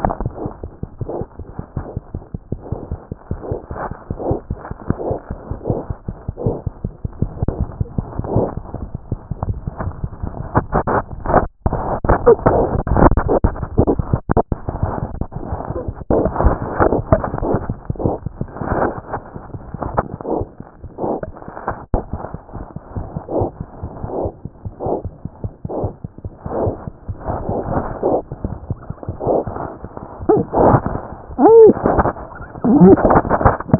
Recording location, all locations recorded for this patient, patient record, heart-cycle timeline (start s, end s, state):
mitral valve (MV)
aortic valve (AV)+mitral valve (MV)
#Age: Infant
#Sex: Female
#Height: 51.0 cm
#Weight: 4.6 kg
#Pregnancy status: False
#Murmur: Absent
#Murmur locations: nan
#Most audible location: nan
#Systolic murmur timing: nan
#Systolic murmur shape: nan
#Systolic murmur grading: nan
#Systolic murmur pitch: nan
#Systolic murmur quality: nan
#Diastolic murmur timing: nan
#Diastolic murmur shape: nan
#Diastolic murmur grading: nan
#Diastolic murmur pitch: nan
#Diastolic murmur quality: nan
#Outcome: Abnormal
#Campaign: 2014 screening campaign
0.00	0.63	unannotated
0.63	0.72	S1
0.72	0.82	systole
0.82	0.89	S2
0.89	1.00	diastole
1.00	1.07	S1
1.07	1.18	systole
1.18	1.25	S2
1.25	1.38	diastole
1.38	1.46	S1
1.46	1.59	systole
1.59	1.66	S2
1.66	1.76	diastole
1.76	1.85	S1
1.85	1.96	systole
1.96	2.03	S2
2.03	2.14	diastole
2.14	2.22	S1
2.22	2.34	systole
2.34	2.42	S2
2.42	2.53	diastole
2.53	2.60	S1
2.60	2.72	systole
2.72	2.78	S2
2.78	2.92	diastole
2.92	33.79	unannotated